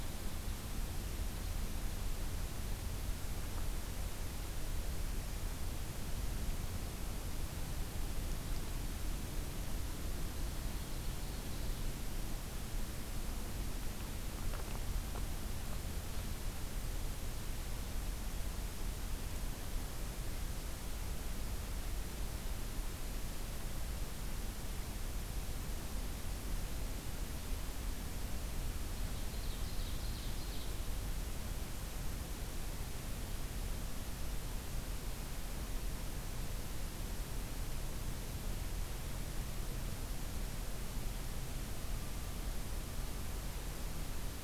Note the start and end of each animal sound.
[10.27, 11.97] Ovenbird (Seiurus aurocapilla)
[29.15, 30.82] Ovenbird (Seiurus aurocapilla)

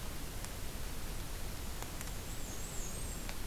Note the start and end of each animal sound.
[1.80, 3.46] Black-and-white Warbler (Mniotilta varia)

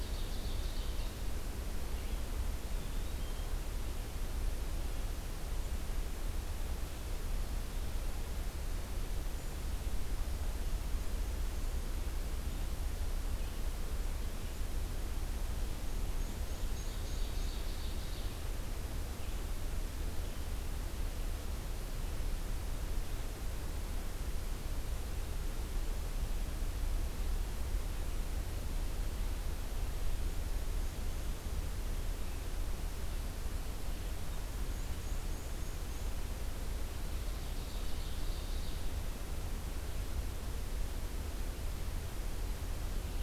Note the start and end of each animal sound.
[0.00, 1.22] Ovenbird (Seiurus aurocapilla)
[1.84, 2.23] Red-eyed Vireo (Vireo olivaceus)
[2.71, 3.52] Black-capped Chickadee (Poecile atricapillus)
[13.18, 14.98] Red-eyed Vireo (Vireo olivaceus)
[15.83, 17.65] Black-and-white Warbler (Mniotilta varia)
[16.68, 18.54] Ovenbird (Seiurus aurocapilla)
[30.19, 31.66] Black-and-white Warbler (Mniotilta varia)
[34.59, 36.21] Black-and-white Warbler (Mniotilta varia)
[36.80, 38.81] Ovenbird (Seiurus aurocapilla)

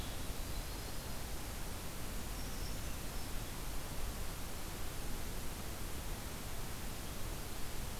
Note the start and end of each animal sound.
[0.20, 1.32] Yellow-rumped Warbler (Setophaga coronata)
[2.08, 3.36] Brown Creeper (Certhia americana)

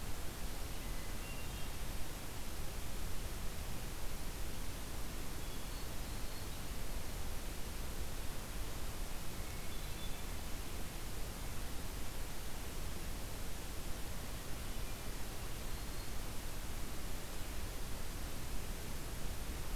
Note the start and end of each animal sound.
[0.67, 2.03] Hermit Thrush (Catharus guttatus)
[5.29, 6.62] Hermit Thrush (Catharus guttatus)
[9.27, 10.60] Hermit Thrush (Catharus guttatus)
[15.49, 16.29] Black-throated Green Warbler (Setophaga virens)

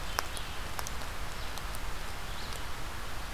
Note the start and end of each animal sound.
[0.00, 3.33] Red-eyed Vireo (Vireo olivaceus)

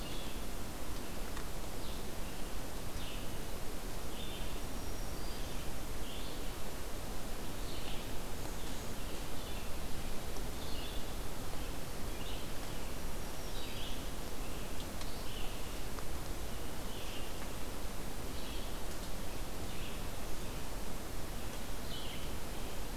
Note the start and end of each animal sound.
[0.00, 22.96] Red-eyed Vireo (Vireo olivaceus)
[4.51, 5.67] Black-throated Green Warbler (Setophaga virens)
[12.97, 13.96] Black-throated Green Warbler (Setophaga virens)

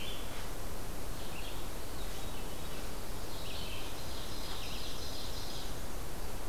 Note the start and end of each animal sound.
[0.00, 1.75] Red-eyed Vireo (Vireo olivaceus)
[1.76, 3.06] Veery (Catharus fuscescens)
[3.18, 6.49] Red-eyed Vireo (Vireo olivaceus)
[3.76, 5.76] Ovenbird (Seiurus aurocapilla)

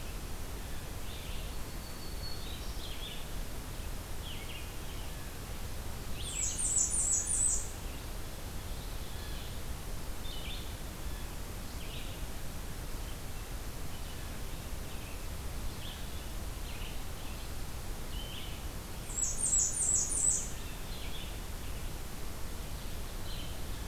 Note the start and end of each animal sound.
[0.00, 6.81] Red-eyed Vireo (Vireo olivaceus)
[1.61, 3.01] Black-throated Green Warbler (Setophaga virens)
[6.07, 7.67] Blackburnian Warbler (Setophaga fusca)
[8.58, 23.87] Red-eyed Vireo (Vireo olivaceus)
[18.89, 20.46] Blackburnian Warbler (Setophaga fusca)

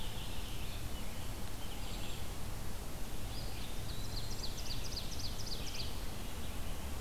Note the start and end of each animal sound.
[0.00, 7.00] Red-eyed Vireo (Vireo olivaceus)
[3.09, 4.48] Eastern Wood-Pewee (Contopus virens)
[3.71, 6.14] Ovenbird (Seiurus aurocapilla)

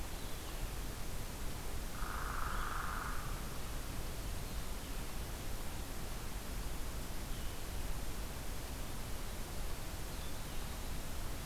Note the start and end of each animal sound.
[0.00, 11.45] Blue-headed Vireo (Vireo solitarius)
[1.86, 3.39] Hairy Woodpecker (Dryobates villosus)

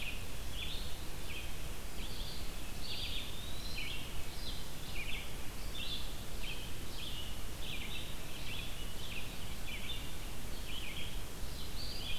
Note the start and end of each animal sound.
[0.00, 12.19] Red-eyed Vireo (Vireo olivaceus)
[2.69, 4.04] Eastern Wood-Pewee (Contopus virens)
[11.57, 12.19] Eastern Wood-Pewee (Contopus virens)

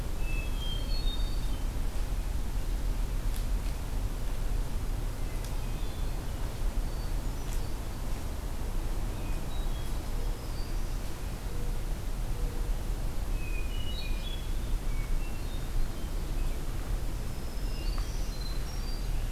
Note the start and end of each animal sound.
[0.00, 1.74] Hermit Thrush (Catharus guttatus)
[5.05, 6.30] Hermit Thrush (Catharus guttatus)
[6.72, 7.88] Hermit Thrush (Catharus guttatus)
[8.89, 10.04] Hermit Thrush (Catharus guttatus)
[10.65, 11.34] Black-throated Green Warbler (Setophaga virens)
[13.18, 16.20] Hermit Thrush (Catharus guttatus)
[17.03, 18.48] Black-throated Green Warbler (Setophaga virens)
[17.62, 19.13] Hermit Thrush (Catharus guttatus)

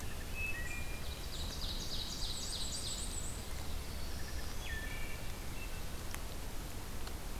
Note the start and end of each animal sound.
[0.00, 1.10] Wood Thrush (Hylocichla mustelina)
[0.86, 3.23] Ovenbird (Seiurus aurocapilla)
[1.95, 3.48] Black-and-white Warbler (Mniotilta varia)
[3.48, 4.87] Black-throated Blue Warbler (Setophaga caerulescens)
[4.19, 5.44] Wood Thrush (Hylocichla mustelina)

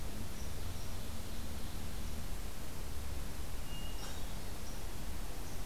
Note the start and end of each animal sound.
[0.31, 1.01] Red Squirrel (Tamiasciurus hudsonicus)
[0.43, 2.14] Ovenbird (Seiurus aurocapilla)
[3.58, 4.66] Hermit Thrush (Catharus guttatus)
[3.93, 5.65] Red Squirrel (Tamiasciurus hudsonicus)

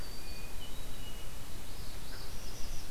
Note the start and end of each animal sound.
[0.14, 1.34] Hermit Thrush (Catharus guttatus)
[1.58, 2.90] Northern Parula (Setophaga americana)

